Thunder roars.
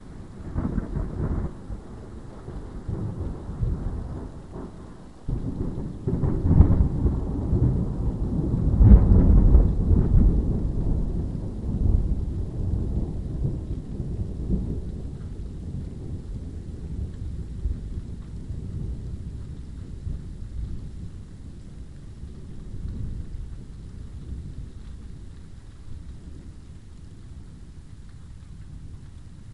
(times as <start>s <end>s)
0.5s 1.9s, 2.6s 4.7s, 5.4s 20.5s